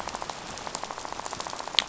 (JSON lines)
{"label": "biophony, rattle", "recorder": "SoundTrap 500"}